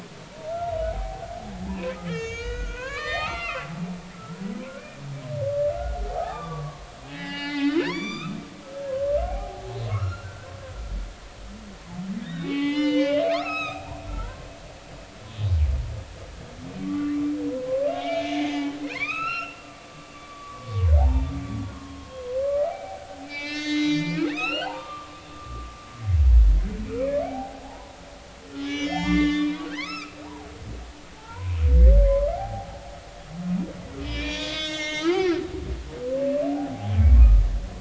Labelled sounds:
0.2	3.7	humpback whale, 0.80 to 6.8 kHz
4.1	4.8	humpback whale, 0.99 to 1.5 kHz
6.1	8.4	humpback whale, 0.80 to 7.0 kHz
8.8	10.5	humpback whale, 0.80 to 4.2 kHz
12.2	14.5	humpback whale, 0.80 to 6.5 kHz
15.3	15.5	humpback whale, 3.6 to 3.9 kHz
16.8	17.2	humpback whale, 1.1 to 1.2 kHz
17.9	21.3	humpback whale, 0.80 to 5.3 kHz
21.7	25.7	humpback whale, 0.80 to 7.5 kHz
27.0	32.8	humpback whale, 0.80 to 7.2 kHz
34.0	35.4	humpback whale, 0.83 to 7.2 kHz
36.5	36.9	humpback whale, 0.80 to 0.90 kHz

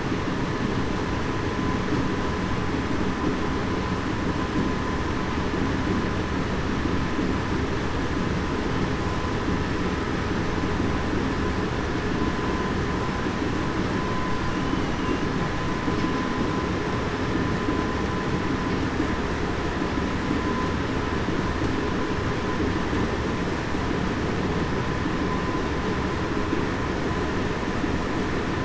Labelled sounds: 14.5	14.9	humpback whale, 2.8 to 3.1 kHz

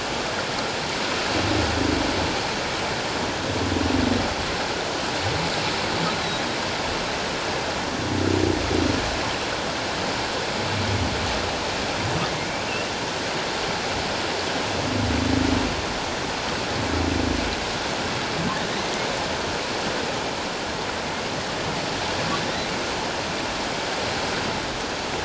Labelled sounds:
6.1	6.4	humpback whale, 3.8 to 4.2 kHz

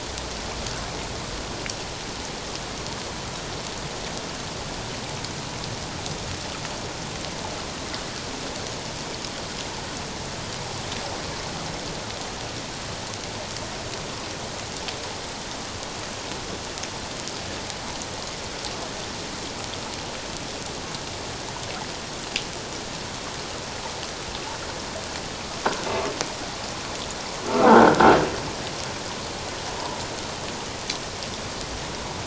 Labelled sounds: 27.7	28.0	croaking sound likely from a nearby submerged object, 1.3 to 1.6 kHz

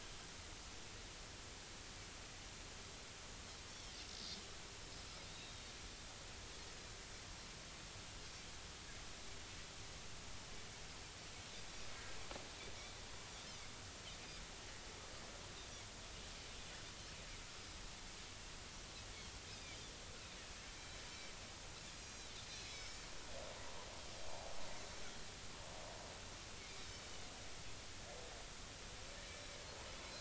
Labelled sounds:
5.3	5.5	Pacific white-sided dolphin, 3.6 to 3.8 kHz
20.8	21.0	Pacific white-sided dolphin, 3.8 to 4.1 kHz
21.9	23.1	Pacific white-sided dolphin, 2.2 to 6.6 kHz

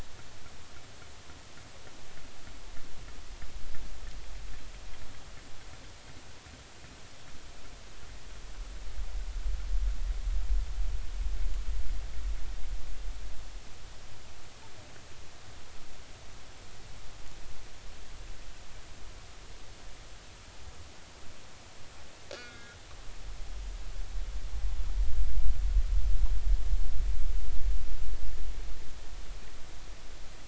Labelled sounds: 22.3	22.8	killer whale, northern resident, G clan, call N41, 1.3 to 3.4 kHz

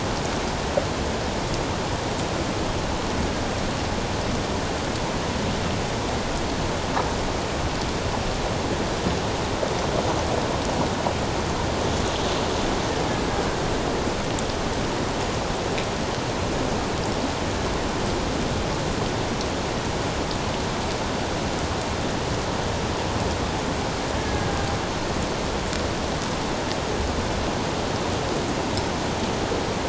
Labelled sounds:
24.2	24.5	killer whale, Bigg's (transient), 1.6 to 1.8 kHz

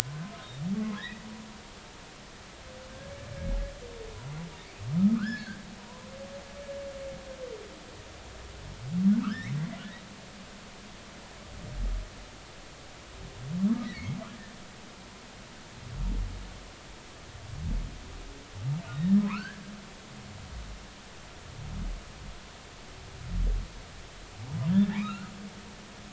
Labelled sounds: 0.7	1.2	humpback whale, 0.96 to 4.0 kHz
5.0	5.6	humpback whale, 1.0 to 1.9 kHz
9.2	9.5	humpback whale, 1.1 to 5.6 kHz
13.8	14.0	humpback whale, 3.8 to 4.1 kHz
19.0	19.6	humpback whale, 0.93 to 1.9 kHz
24.7	25.3	humpback whale, 1.1 to 3.9 kHz

